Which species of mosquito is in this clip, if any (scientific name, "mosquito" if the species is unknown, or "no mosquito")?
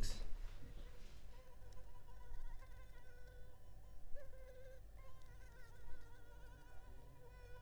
Anopheles leesoni